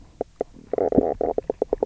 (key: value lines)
label: biophony, knock croak
recorder: SoundTrap 300